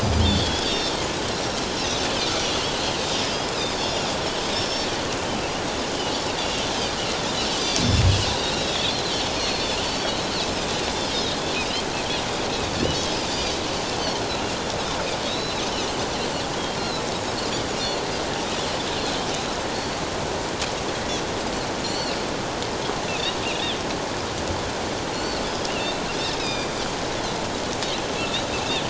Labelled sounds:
0.2	0.9	Pacific white-sided dolphin, 3.1 to 5.6 kHz
1.3	1.6	Pacific white-sided dolphin, 5.4 to 5.8 kHz
2.4	2.7	Pacific white-sided dolphin, 2.8 to 3.0 kHz
3.5	4.9	Pacific white-sided dolphin, 3.2 to 7.1 kHz
6.4	6.7	Pacific white-sided dolphin, 3.2 to 3.6 kHz
8.3	9.0	Pacific white-sided dolphin, 2.5 to 4.0 kHz
9.4	10.3	Pacific white-sided dolphin, 3.7 to 4.6 kHz
13.3	13.6	Pacific white-sided dolphin, 4.5 to 5.0 kHz
15.2	15.6	Pacific white-sided dolphin, 3.5 to 4.1 kHz
16.8	18.0	Pacific white-sided dolphin, 2.8 to 4.4 kHz
19.7	20.0	Pacific white-sided dolphin, 4.3 to 4.6 kHz
21.8	22.2	Pacific white-sided dolphin, 2.6 to 7.5 kHz
23.1	23.4	Pacific white-sided dolphin, 2.4 to 2.9 kHz
25.1	26.8	Pacific white-sided dolphin, 2.3 to 5.2 kHz
28.2	28.8	Pacific white-sided dolphin, 2.5 to 3.0 kHz

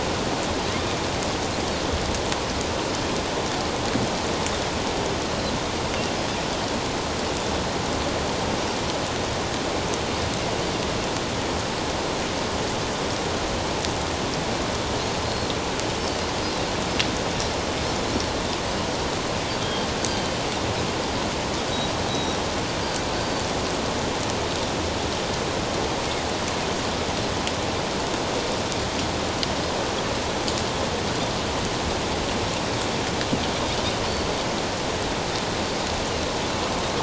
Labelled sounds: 15.2	15.5	Pacific white-sided dolphin, 4.1 to 4.3 kHz
19.6	20.4	Pacific white-sided dolphin, 3.1 to 4.8 kHz
22.1	22.4	Pacific white-sided dolphin, 3.7 to 4.1 kHz
23.1	23.5	Pacific white-sided dolphin, 4.4 to 4.7 kHz

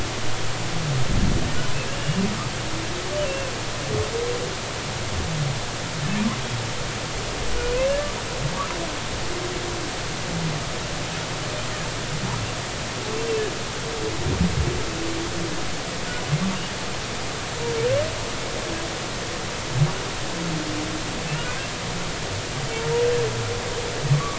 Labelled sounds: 1.9	2.2	humpback whale, 2.6 to 2.9 kHz
3.2	3.5	humpback whale, 2.6 to 2.8 kHz
7.9	8.1	humpback whale, 1.6 to 1.8 kHz
24.1	24.3	humpback whale, 1.1 to 1.2 kHz

